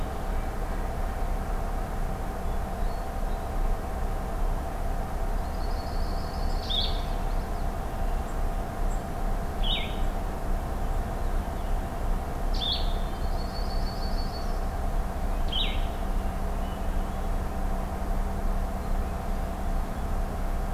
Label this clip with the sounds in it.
Hermit Thrush, Yellow-rumped Warbler, Blue-headed Vireo, Common Yellowthroat, Purple Finch